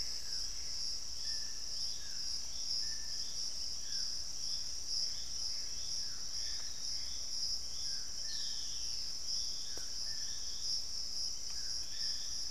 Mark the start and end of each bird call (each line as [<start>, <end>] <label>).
[0.00, 11.78] Piratic Flycatcher (Legatus leucophaius)
[0.00, 12.51] Dusky-throated Antshrike (Thamnomanes ardesiacus)
[0.00, 12.51] Gray Antbird (Cercomacra cinerascens)
[8.18, 9.18] Black-spotted Bare-eye (Phlegopsis nigromaculata)